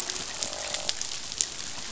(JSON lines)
{"label": "biophony, croak", "recorder": "SoundTrap 500"}